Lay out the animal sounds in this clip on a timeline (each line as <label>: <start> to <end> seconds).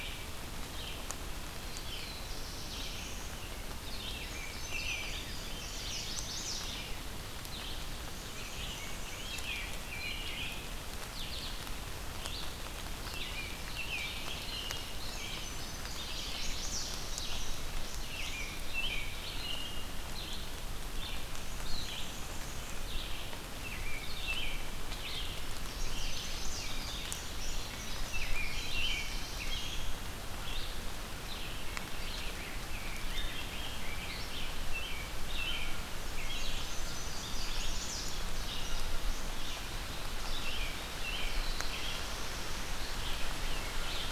Red-eyed Vireo (Vireo olivaceus): 0.0 to 26.4 seconds
Black-throated Blue Warbler (Setophaga caerulescens): 1.6 to 3.4 seconds
American Robin (Turdus migratorius): 4.1 to 5.8 seconds
Indigo Bunting (Passerina cyanea): 4.1 to 6.2 seconds
Chestnut-sided Warbler (Setophaga pensylvanica): 5.4 to 6.9 seconds
Black-and-white Warbler (Mniotilta varia): 7.9 to 9.5 seconds
Rose-breasted Grosbeak (Pheucticus ludovicianus): 8.6 to 10.3 seconds
American Robin (Turdus migratorius): 13.1 to 15.6 seconds
Indigo Bunting (Passerina cyanea): 14.5 to 18.4 seconds
Chestnut-sided Warbler (Setophaga pensylvanica): 15.6 to 17.0 seconds
American Robin (Turdus migratorius): 18.0 to 19.8 seconds
Black-and-white Warbler (Mniotilta varia): 21.2 to 23.0 seconds
American Robin (Turdus migratorius): 23.5 to 24.6 seconds
Chestnut-sided Warbler (Setophaga pensylvanica): 25.6 to 26.7 seconds
Indigo Bunting (Passerina cyanea): 25.8 to 29.2 seconds
Red-eyed Vireo (Vireo olivaceus): 26.8 to 44.1 seconds
American Robin (Turdus migratorius): 27.8 to 29.9 seconds
Black-throated Blue Warbler (Setophaga caerulescens): 28.3 to 29.9 seconds
Rose-breasted Grosbeak (Pheucticus ludovicianus): 31.8 to 34.5 seconds
American Robin (Turdus migratorius): 34.6 to 36.6 seconds
Indigo Bunting (Passerina cyanea): 36.0 to 39.6 seconds
Chestnut-sided Warbler (Setophaga pensylvanica): 37.0 to 38.2 seconds
American Robin (Turdus migratorius): 40.2 to 42.1 seconds
Rose-breasted Grosbeak (Pheucticus ludovicianus): 42.8 to 44.1 seconds